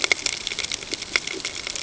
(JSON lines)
{"label": "ambient", "recorder": "HydroMoth"}